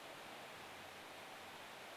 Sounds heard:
forest ambience